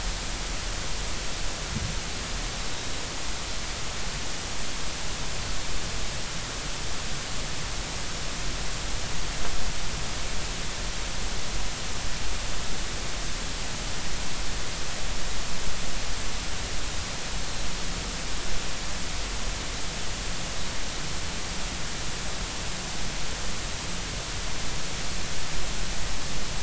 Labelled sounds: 2.7	3.0	Pacific white-sided dolphin, 3.8 to 4.0 kHz

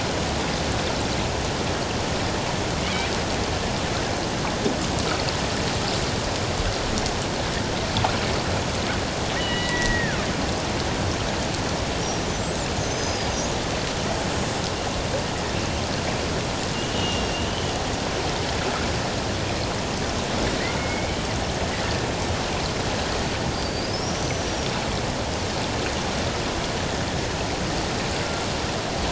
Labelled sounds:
9.3	10.2	killer whale, Bigg's (transient), 1.4 to 3.0 kHz
12.4	13.5	killer whale, Bigg's (transient), 4.7 to 7.9 kHz
16.7	17.7	killer whale, Bigg's (transient), 2.7 to 3.2 kHz
20.8	21.2	killer whale, Bigg's (transient), 2.1 to 2.3 kHz
23.5	24.7	killer whale, Bigg's (transient), 4.4 to 6.1 kHz

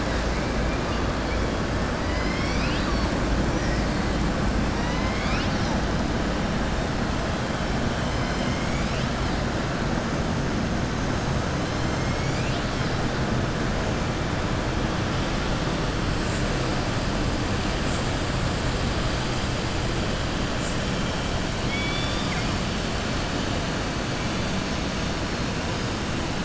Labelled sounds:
4.7	5.8	killer whale, southern resident, 1.0 to 6.0 kHz
21.6	22.5	killer whale, southern resident, 1.2 to 5.5 kHz

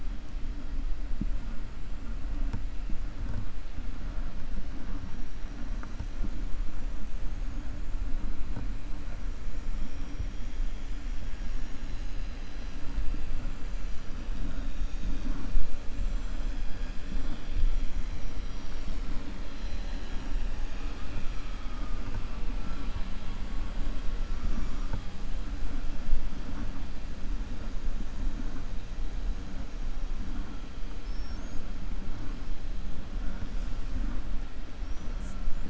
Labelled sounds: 30.9	31.6	killer whale, 5.0 to 7.5 kHz

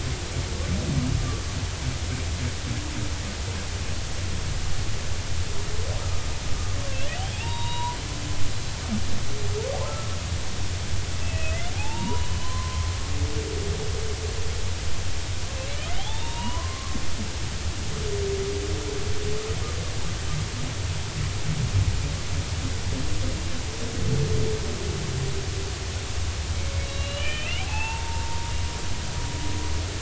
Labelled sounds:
7.1	8.0	humpback whale, 0.83 to 3.9 kHz
9.8	10.1	humpback whale, 1.2 to 1.4 kHz
11.2	12.9	humpback whale, 0.80 to 4.1 kHz
15.9	17.0	humpback whale, 0.80 to 3.8 kHz
26.6	28.5	humpback whale, 0.80 to 4.1 kHz

